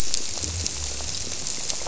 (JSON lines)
{"label": "biophony", "recorder": "SoundTrap 300"}